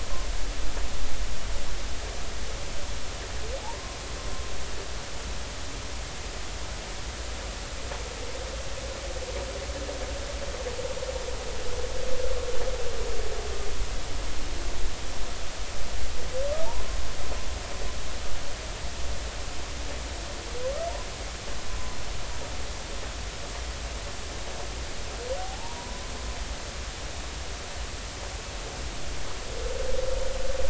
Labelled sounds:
3.6	4.0	humpback whale, 0.80 to 1.1 kHz
16.6	17.0	humpback whale, 0.86 to 1.1 kHz
25.4	26.0	humpback whale, 0.80 to 1.1 kHz

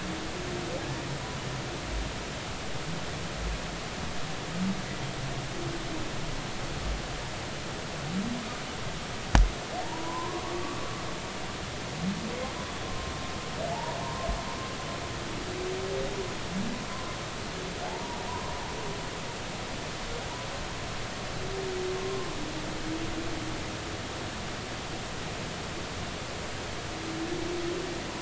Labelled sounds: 9.8	11.0	humpback whale, 0.86 to 1.2 kHz
12.8	13.1	humpback whale, 1.0 to 1.1 kHz
13.7	14.3	humpback whale, 0.80 to 1.1 kHz
17.9	18.5	humpback whale, 0.80 to 1.1 kHz

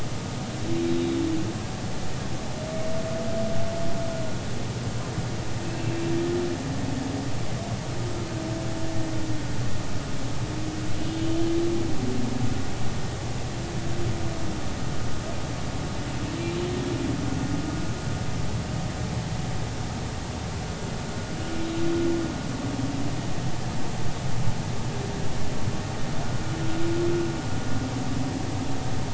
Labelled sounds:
5.6	5.9	humpback whale, 2.6 to 2.7 kHz

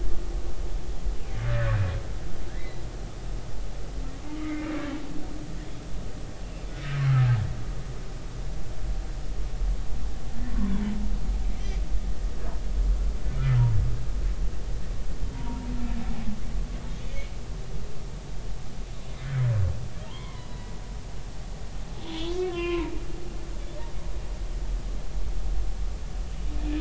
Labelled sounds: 2.6	2.8	humpback whale, 1.9 to 2.1 kHz
4.4	4.7	humpback whale, 2.0 to 2.3 kHz
10.5	10.9	humpback whale, 0.83 to 1.2 kHz
15.3	15.7	humpback whale, 0.90 to 0.99 kHz
20.1	20.5	humpback whale, 0.83 to 2.3 kHz
22.0	23.0	humpback whale, 0.86 to 3.9 kHz
23.5	23.9	humpback whale, 2.6 to 2.9 kHz

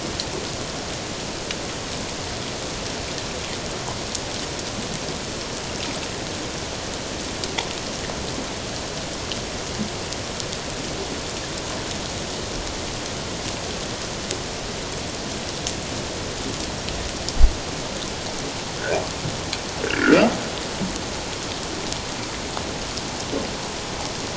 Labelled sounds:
19.8	20.3	humpback whale, 1.2 to 1.8 kHz

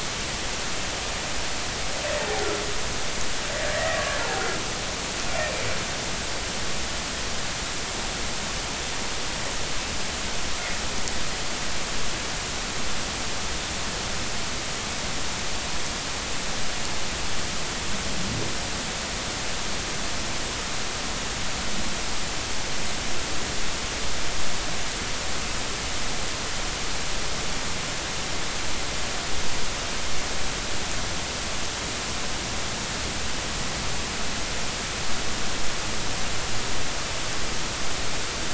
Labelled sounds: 3.6	4.2	humpback whale, 1.1 to 2.0 kHz

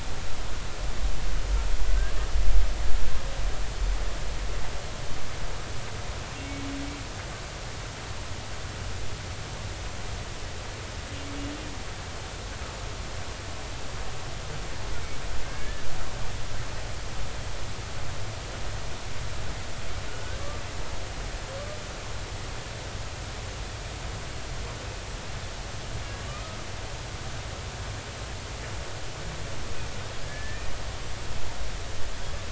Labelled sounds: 1.9	2.1	humpback whale, 1.5 to 1.7 kHz
15.4	15.8	humpback whale, 1.6 to 2.3 kHz
20.1	20.4	humpback whale, 1.4 to 1.6 kHz
26.3	26.6	humpback whale, 1.2 to 1.3 kHz
30.3	30.7	humpback whale, 1.6 to 1.9 kHz

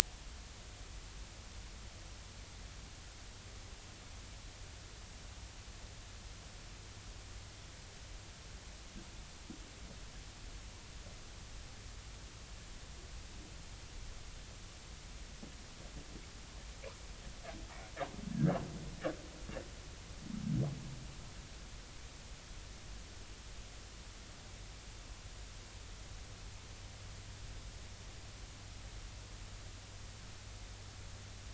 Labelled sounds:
18.3	18.6	humpback whale, 1.5 to 1.8 kHz

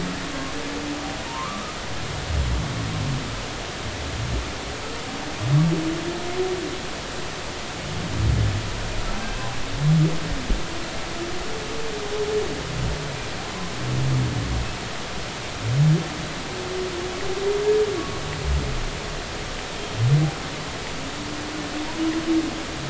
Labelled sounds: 1.3	1.8	humpback whale, 0.86 to 1.3 kHz
18.0	18.2	humpback whale, 1.1 to 1.2 kHz

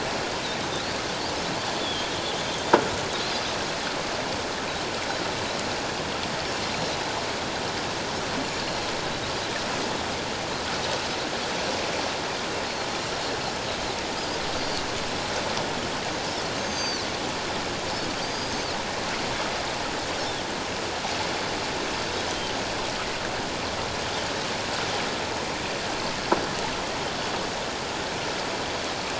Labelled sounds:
1.8	2.1	Pacific white-sided dolphin, 3.1 to 3.6 kHz
8.6	8.9	Pacific white-sided dolphin, 3.9 to 4.3 kHz
16.6	17.0	Pacific white-sided dolphin, 4.1 to 6.5 kHz
18.2	18.7	Pacific white-sided dolphin, 4.6 to 6.5 kHz

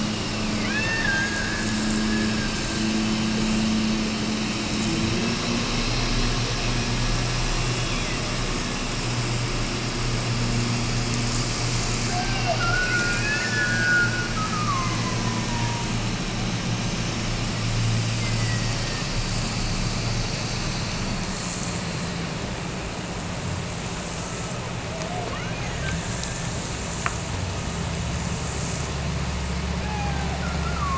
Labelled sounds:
0.6	2.9	killer whale, Bigg's (transient), Gulf of Alaska transient, 1.4 to 4.6 kHz
12.1	16.0	killer whale, Bigg's (transient), Gulf of Alaska transient, 0.50 to 3.0 kHz
18.1	19.2	killer whale, Bigg's (transient), Gulf of Alaska transient, 1.6 to 2.1 kHz
24.8	26.1	killer whale, Bigg's (transient), Gulf of Alaska transient, 0.25 to 3.1 kHz
29.8	30.9	killer whale, Bigg's (transient), Gulf of Alaska transient, 0.68 to 2.7 kHz

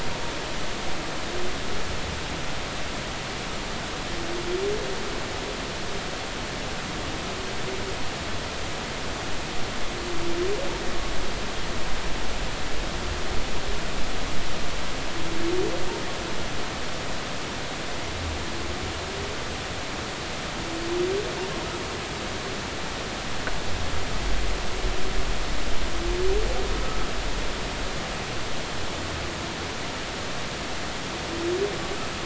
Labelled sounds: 26.8	27.1	humpback whale, 1.1 to 1.3 kHz

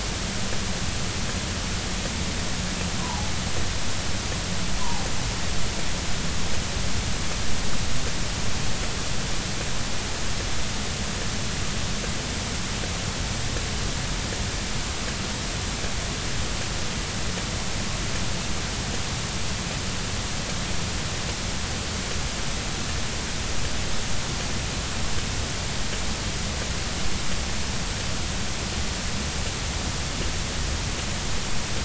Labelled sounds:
3.0	3.3	humpback whale, 0.80 to 1.1 kHz
4.8	5.1	humpback whale, 0.80 to 1.1 kHz

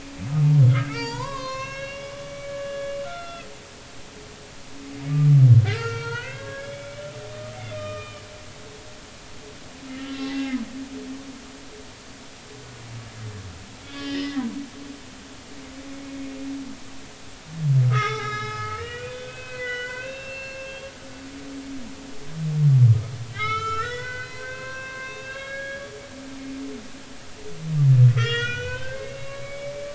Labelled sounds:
0.7	3.5	humpback whale, 0.86 to 6.6 kHz
5.6	8.2	humpback whale, 0.86 to 4.7 kHz
9.9	11.2	humpback whale, 1.0 to 3.3 kHz
13.9	15.2	humpback whale, 1.6 to 4.8 kHz
17.9	20.9	humpback whale, 0.80 to 5.6 kHz
22.9	26.2	humpback whale, 0.96 to 5.7 kHz
28.1	29.7	humpback whale, 1.1 to 6.4 kHz

